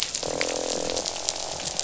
{"label": "biophony, croak", "recorder": "SoundTrap 500"}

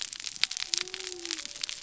{"label": "biophony", "recorder": "SoundTrap 300"}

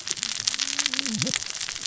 {"label": "biophony, cascading saw", "recorder": "SoundTrap 600 or HydroMoth"}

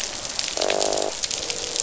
{"label": "biophony, croak", "recorder": "SoundTrap 500"}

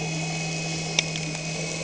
{"label": "anthrophony, boat engine", "recorder": "HydroMoth"}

